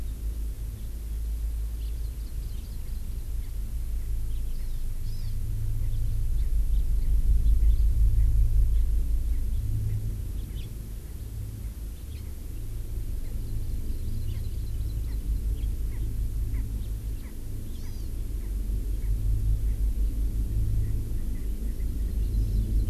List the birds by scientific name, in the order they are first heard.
Haemorhous mexicanus, Chlorodrepanis virens, Pternistis erckelii